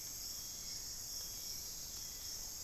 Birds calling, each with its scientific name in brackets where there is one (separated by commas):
Hauxwell's Thrush (Turdus hauxwelli)